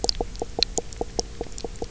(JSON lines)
{"label": "biophony, knock croak", "recorder": "SoundTrap 300"}